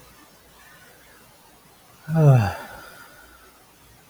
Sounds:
Sigh